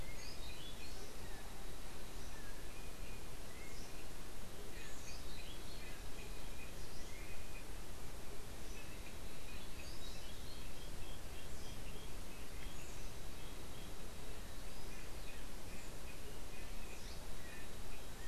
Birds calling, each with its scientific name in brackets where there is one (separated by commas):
Orange-billed Nightingale-Thrush (Catharus aurantiirostris)